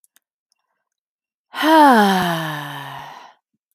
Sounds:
Sigh